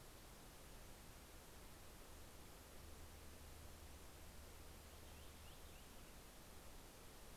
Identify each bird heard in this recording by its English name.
Purple Finch